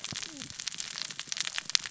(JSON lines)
{"label": "biophony, cascading saw", "recorder": "SoundTrap 600 or HydroMoth"}